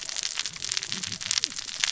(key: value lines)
label: biophony, cascading saw
recorder: SoundTrap 600 or HydroMoth